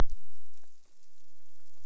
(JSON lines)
{"label": "biophony", "recorder": "SoundTrap 300"}